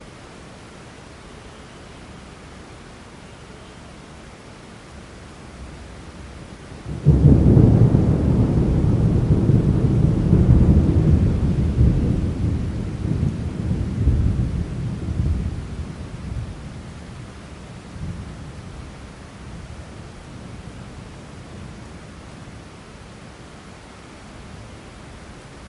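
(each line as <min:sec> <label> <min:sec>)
0:00.0 Heavy rain is falling. 0:25.7
0:07.0 Thunder rumbles loudly. 0:14.5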